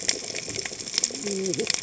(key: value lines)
label: biophony, cascading saw
recorder: HydroMoth